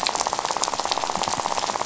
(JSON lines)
{"label": "biophony, rattle", "recorder": "SoundTrap 500"}